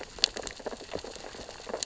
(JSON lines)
{"label": "biophony, sea urchins (Echinidae)", "recorder": "SoundTrap 600 or HydroMoth"}